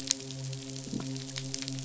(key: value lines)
label: biophony
recorder: SoundTrap 500

label: biophony, midshipman
recorder: SoundTrap 500